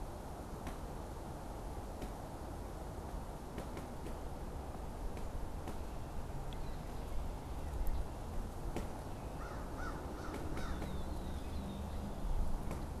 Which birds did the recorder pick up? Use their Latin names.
Corvus brachyrhynchos, Agelaius phoeniceus